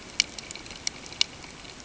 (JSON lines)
{"label": "ambient", "recorder": "HydroMoth"}